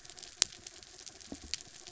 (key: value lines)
label: anthrophony, mechanical
recorder: SoundTrap 300